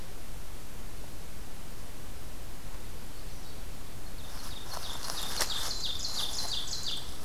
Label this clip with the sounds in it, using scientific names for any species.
Seiurus aurocapilla